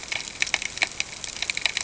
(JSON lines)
{"label": "ambient", "recorder": "HydroMoth"}